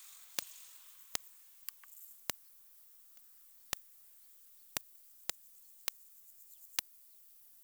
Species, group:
Poecilimon jonicus, Orthoptera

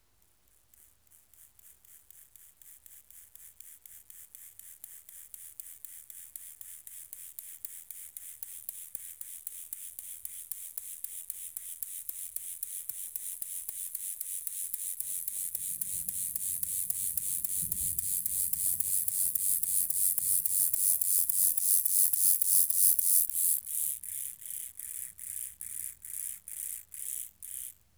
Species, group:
Chorthippus mollis, Orthoptera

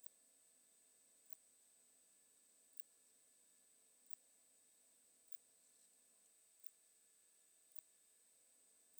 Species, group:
Poecilimon ikariensis, Orthoptera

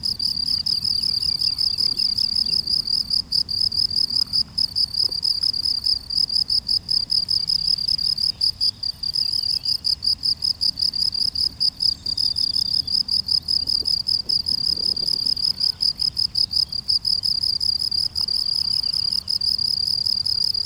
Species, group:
Gryllus campestris, Orthoptera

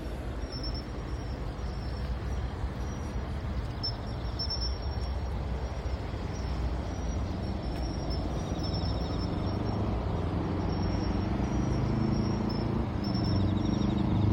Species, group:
Xenogryllus marmoratus, Orthoptera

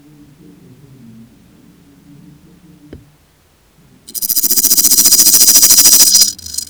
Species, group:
Stenobothrus stigmaticus, Orthoptera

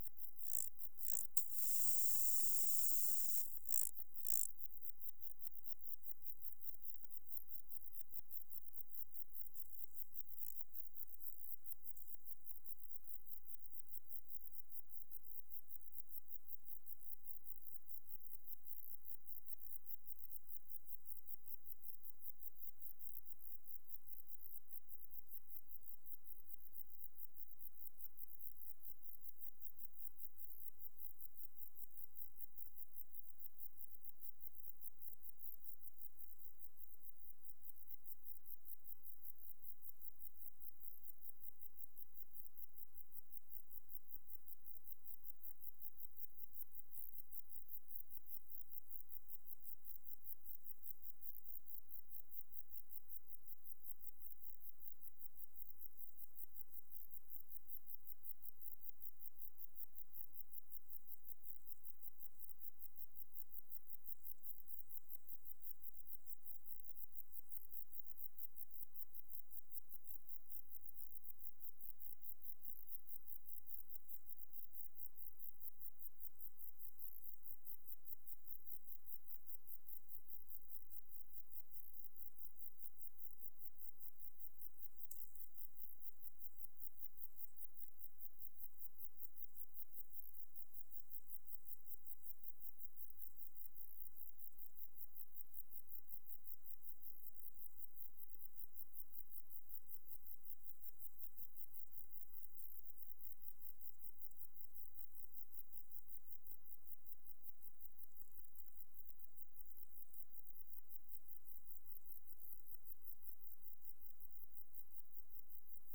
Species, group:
Arcyptera fusca, Orthoptera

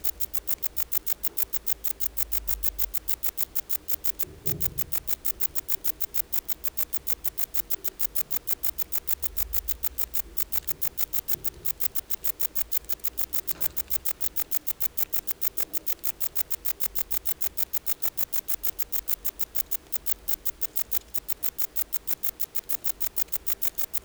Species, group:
Rhacocleis baccettii, Orthoptera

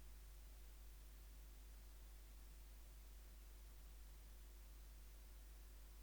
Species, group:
Phaneroptera falcata, Orthoptera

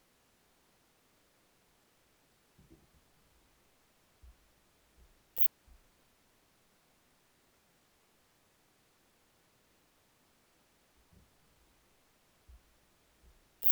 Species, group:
Phaneroptera falcata, Orthoptera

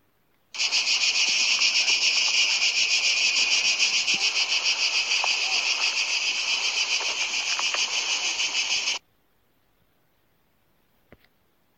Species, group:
Cicada orni, Cicadidae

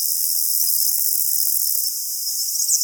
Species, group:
Conocephalus fuscus, Orthoptera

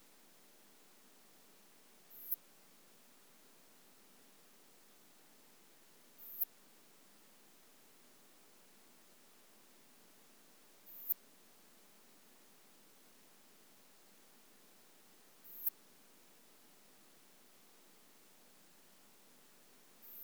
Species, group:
Poecilimon pseudornatus, Orthoptera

